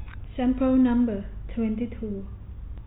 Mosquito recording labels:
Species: no mosquito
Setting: cup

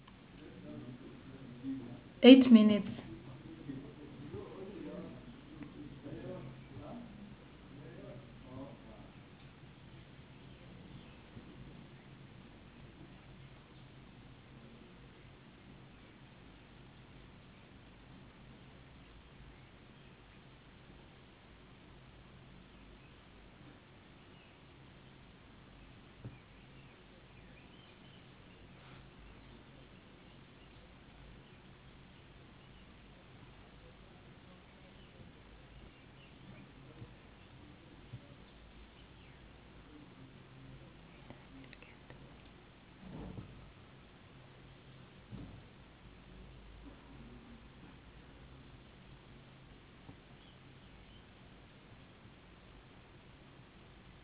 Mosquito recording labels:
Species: no mosquito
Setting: insect culture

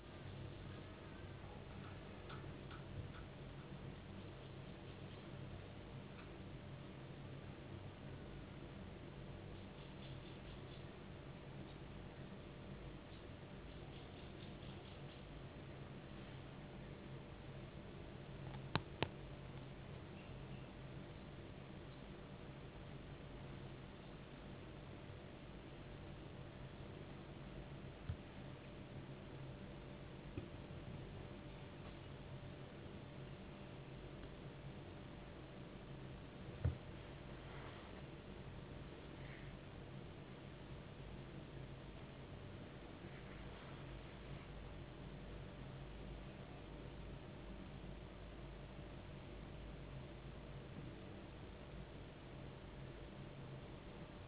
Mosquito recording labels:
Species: no mosquito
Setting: insect culture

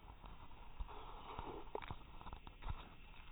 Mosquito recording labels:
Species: no mosquito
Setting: cup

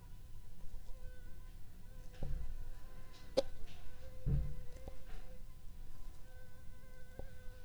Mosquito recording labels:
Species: Anopheles funestus s.s.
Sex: female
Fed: unfed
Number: one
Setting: cup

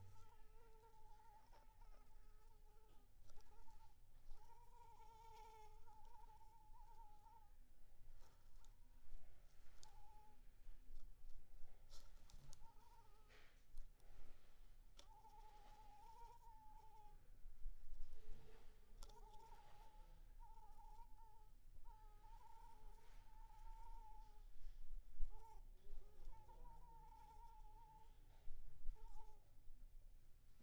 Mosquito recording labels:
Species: Anopheles arabiensis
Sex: female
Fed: unfed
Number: one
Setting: cup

